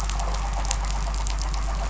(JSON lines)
{"label": "anthrophony, boat engine", "recorder": "SoundTrap 500"}